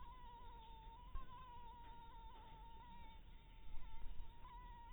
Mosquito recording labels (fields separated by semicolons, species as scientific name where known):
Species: Anopheles harrisoni; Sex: female; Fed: blood-fed; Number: one; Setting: cup